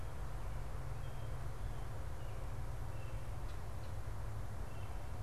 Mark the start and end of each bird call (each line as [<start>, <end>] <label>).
[0.00, 2.43] American Robin (Turdus migratorius)
[2.93, 5.23] Red-bellied Woodpecker (Melanerpes carolinus)